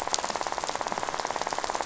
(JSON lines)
{"label": "biophony, rattle", "recorder": "SoundTrap 500"}